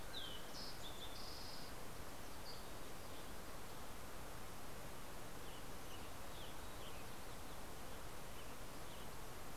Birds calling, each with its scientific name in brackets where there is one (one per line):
Dusky Flycatcher (Empidonax oberholseri)
Fox Sparrow (Passerella iliaca)
Western Tanager (Piranga ludoviciana)